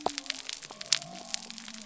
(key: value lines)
label: biophony
recorder: SoundTrap 300